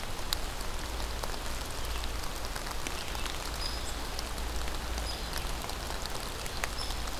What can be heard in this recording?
Downy Woodpecker